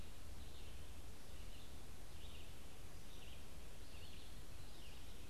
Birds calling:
Red-eyed Vireo (Vireo olivaceus)

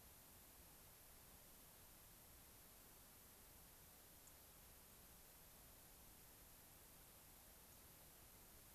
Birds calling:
White-crowned Sparrow (Zonotrichia leucophrys)

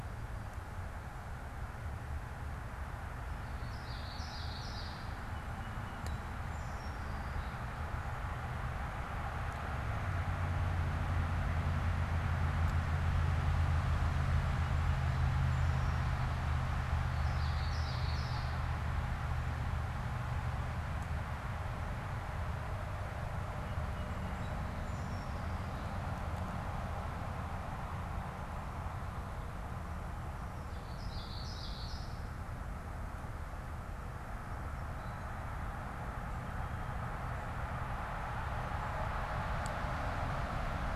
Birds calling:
Common Yellowthroat (Geothlypis trichas)
Song Sparrow (Melospiza melodia)

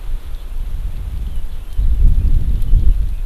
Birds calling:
Red-billed Leiothrix (Leiothrix lutea)

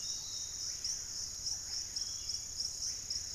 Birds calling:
Screaming Piha (Lipaugus vociferans)
unidentified bird
Piratic Flycatcher (Legatus leucophaius)

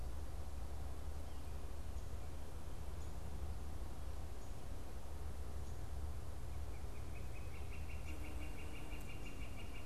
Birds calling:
Northern Flicker (Colaptes auratus)

